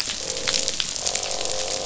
{"label": "biophony, croak", "recorder": "SoundTrap 500"}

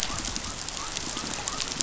{"label": "biophony", "recorder": "SoundTrap 500"}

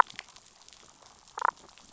{"label": "biophony, damselfish", "recorder": "SoundTrap 500"}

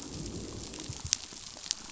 {"label": "biophony, growl", "recorder": "SoundTrap 500"}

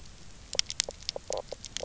{"label": "biophony, knock croak", "recorder": "SoundTrap 300"}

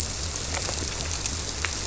{"label": "biophony", "recorder": "SoundTrap 300"}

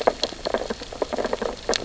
{"label": "biophony, sea urchins (Echinidae)", "recorder": "SoundTrap 600 or HydroMoth"}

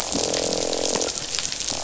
{"label": "biophony, croak", "recorder": "SoundTrap 500"}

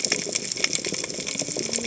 {"label": "biophony, cascading saw", "recorder": "HydroMoth"}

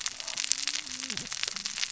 {"label": "biophony, cascading saw", "recorder": "SoundTrap 600 or HydroMoth"}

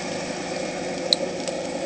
{"label": "anthrophony, boat engine", "recorder": "HydroMoth"}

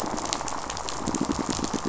{"label": "biophony, pulse", "recorder": "SoundTrap 500"}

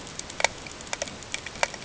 {"label": "ambient", "recorder": "HydroMoth"}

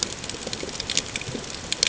{"label": "ambient", "recorder": "HydroMoth"}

